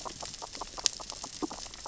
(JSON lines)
{"label": "biophony, grazing", "recorder": "SoundTrap 600 or HydroMoth"}